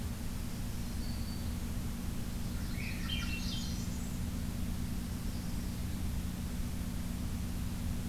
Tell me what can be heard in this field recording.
Black-throated Green Warbler, Blackburnian Warbler, Swainson's Thrush, Yellow-rumped Warbler